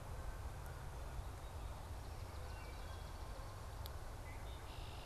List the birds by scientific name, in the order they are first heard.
Branta canadensis, Melospiza georgiana, Hylocichla mustelina, Agelaius phoeniceus